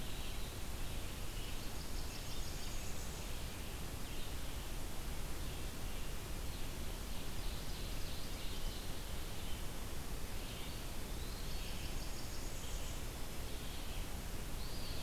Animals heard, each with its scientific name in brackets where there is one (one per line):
Blackburnian Warbler (Setophaga fusca)
Ovenbird (Seiurus aurocapilla)
Red-eyed Vireo (Vireo olivaceus)
Eastern Wood-Pewee (Contopus virens)